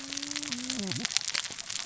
{"label": "biophony, cascading saw", "recorder": "SoundTrap 600 or HydroMoth"}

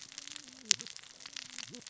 {"label": "biophony, cascading saw", "recorder": "SoundTrap 600 or HydroMoth"}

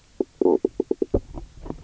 {"label": "biophony, knock croak", "recorder": "SoundTrap 300"}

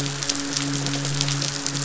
{"label": "biophony, midshipman", "recorder": "SoundTrap 500"}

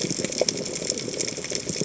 {"label": "biophony, chatter", "recorder": "HydroMoth"}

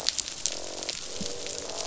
{"label": "biophony, croak", "recorder": "SoundTrap 500"}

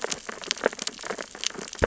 {"label": "biophony, sea urchins (Echinidae)", "recorder": "SoundTrap 600 or HydroMoth"}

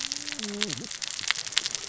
{"label": "biophony, cascading saw", "recorder": "SoundTrap 600 or HydroMoth"}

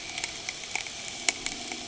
{"label": "anthrophony, boat engine", "recorder": "HydroMoth"}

